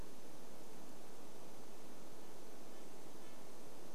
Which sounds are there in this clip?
Red-breasted Nuthatch song